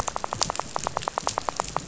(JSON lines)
{"label": "biophony, rattle", "recorder": "SoundTrap 500"}